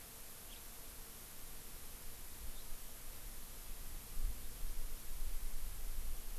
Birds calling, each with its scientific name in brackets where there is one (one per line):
House Finch (Haemorhous mexicanus)